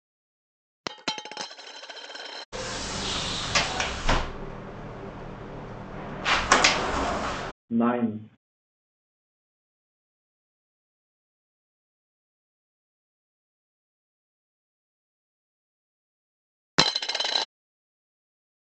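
At 0.83 seconds, a coin drops. Next, at 2.52 seconds, you can hear a sliding door. At 7.71 seconds, someone says "nine." Later, at 16.77 seconds, a coin drops.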